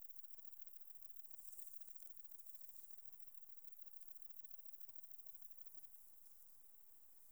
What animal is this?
Conocephalus fuscus, an orthopteran